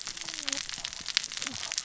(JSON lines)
{"label": "biophony, cascading saw", "recorder": "SoundTrap 600 or HydroMoth"}